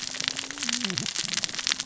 {"label": "biophony, cascading saw", "recorder": "SoundTrap 600 or HydroMoth"}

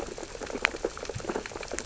{"label": "biophony, sea urchins (Echinidae)", "recorder": "SoundTrap 600 or HydroMoth"}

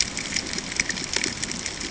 {"label": "ambient", "recorder": "HydroMoth"}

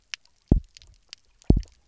{"label": "biophony, double pulse", "recorder": "SoundTrap 300"}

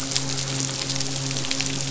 {"label": "biophony, midshipman", "recorder": "SoundTrap 500"}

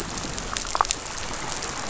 {"label": "biophony", "recorder": "SoundTrap 500"}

